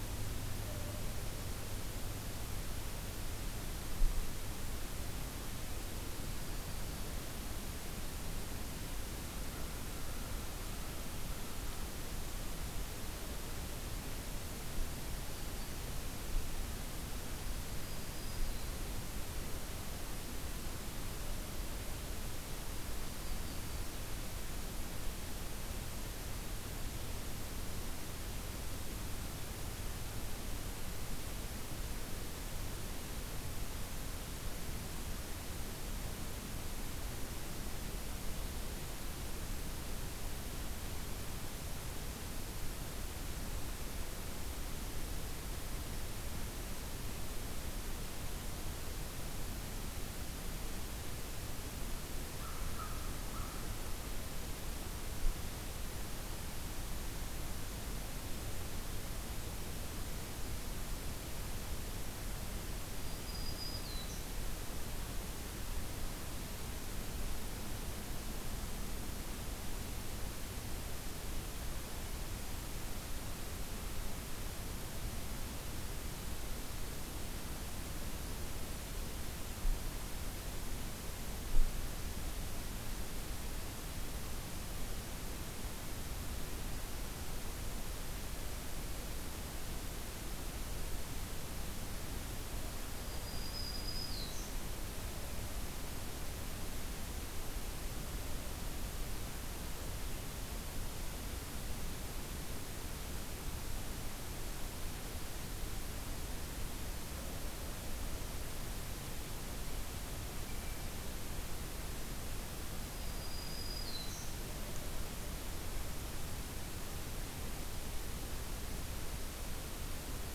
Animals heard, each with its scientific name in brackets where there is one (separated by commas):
Blue Jay (Cyanocitta cristata), Yellow-rumped Warbler (Setophaga coronata), Black-throated Green Warbler (Setophaga virens), American Crow (Corvus brachyrhynchos)